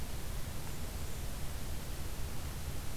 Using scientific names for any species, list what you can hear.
Setophaga fusca